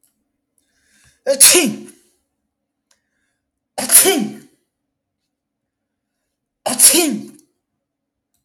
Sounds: Sneeze